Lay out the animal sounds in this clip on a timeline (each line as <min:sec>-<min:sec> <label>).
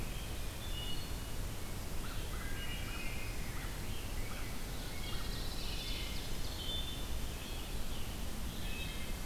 0:00.0-0:00.7 Scarlet Tanager (Piranga olivacea)
0:00.3-0:01.3 Wood Thrush (Hylocichla mustelina)
0:01.9-0:03.9 American Crow (Corvus brachyrhynchos)
0:02.4-0:03.0 Wood Thrush (Hylocichla mustelina)
0:03.0-0:05.7 Rose-breasted Grosbeak (Pheucticus ludovicianus)
0:04.5-0:06.8 Ovenbird (Seiurus aurocapilla)
0:04.7-0:07.1 Wood Thrush (Hylocichla mustelina)
0:06.9-0:08.9 Scarlet Tanager (Piranga olivacea)
0:08.5-0:09.2 Wood Thrush (Hylocichla mustelina)